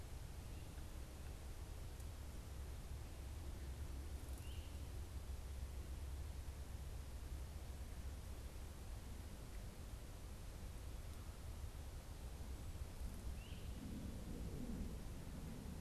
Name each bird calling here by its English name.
Great Crested Flycatcher